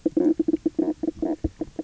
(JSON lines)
{"label": "biophony, knock croak", "recorder": "SoundTrap 300"}